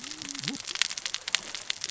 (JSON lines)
{"label": "biophony, cascading saw", "recorder": "SoundTrap 600 or HydroMoth"}